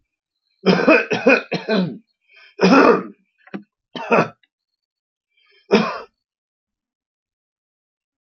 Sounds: Cough